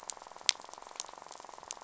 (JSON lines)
{"label": "biophony, rattle", "recorder": "SoundTrap 500"}